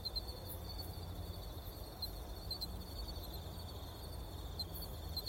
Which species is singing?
Ornebius aperta